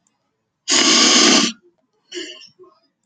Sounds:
Sniff